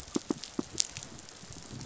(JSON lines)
{"label": "biophony", "recorder": "SoundTrap 500"}